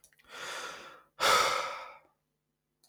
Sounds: Sigh